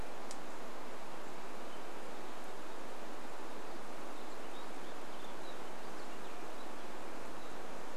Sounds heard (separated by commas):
unidentified sound